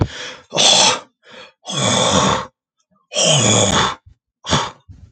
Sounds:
Throat clearing